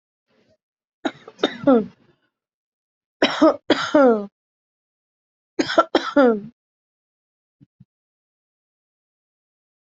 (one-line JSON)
{"expert_labels": [{"quality": "good", "cough_type": "dry", "dyspnea": false, "wheezing": false, "stridor": false, "choking": false, "congestion": false, "nothing": true, "diagnosis": "healthy cough", "severity": "unknown"}], "age": 22, "gender": "female", "respiratory_condition": false, "fever_muscle_pain": false, "status": "COVID-19"}